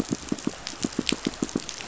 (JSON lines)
{"label": "biophony, pulse", "recorder": "SoundTrap 500"}